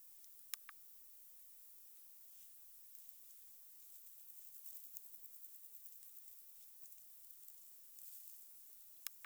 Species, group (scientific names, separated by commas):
Odontura aspericauda, Orthoptera